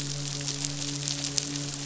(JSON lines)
{"label": "biophony, midshipman", "recorder": "SoundTrap 500"}